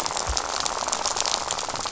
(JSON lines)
{"label": "biophony, rattle", "recorder": "SoundTrap 500"}